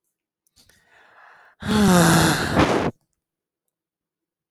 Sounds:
Sigh